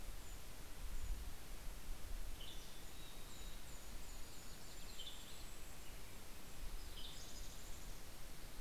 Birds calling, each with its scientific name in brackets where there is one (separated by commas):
Yellow-rumped Warbler (Setophaga coronata), Western Tanager (Piranga ludoviciana), Golden-crowned Kinglet (Regulus satrapa), Mountain Chickadee (Poecile gambeli)